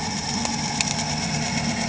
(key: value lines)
label: anthrophony, boat engine
recorder: HydroMoth